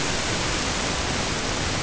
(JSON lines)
{"label": "ambient", "recorder": "HydroMoth"}